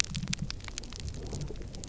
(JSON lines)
{"label": "biophony", "recorder": "SoundTrap 300"}